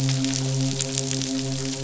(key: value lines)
label: biophony, midshipman
recorder: SoundTrap 500